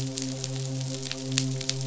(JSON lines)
{"label": "biophony, midshipman", "recorder": "SoundTrap 500"}